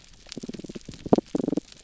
{"label": "biophony", "recorder": "SoundTrap 300"}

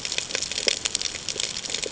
{"label": "ambient", "recorder": "HydroMoth"}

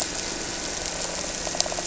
{"label": "anthrophony, boat engine", "recorder": "SoundTrap 300"}
{"label": "biophony", "recorder": "SoundTrap 300"}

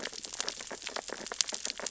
{"label": "biophony, sea urchins (Echinidae)", "recorder": "SoundTrap 600 or HydroMoth"}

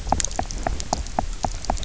{"label": "biophony, knock", "recorder": "SoundTrap 300"}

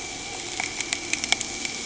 {"label": "anthrophony, boat engine", "recorder": "HydroMoth"}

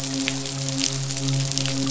{"label": "biophony, midshipman", "recorder": "SoundTrap 500"}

